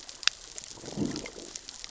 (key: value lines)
label: biophony, growl
recorder: SoundTrap 600 or HydroMoth